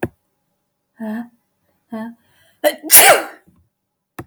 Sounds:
Sneeze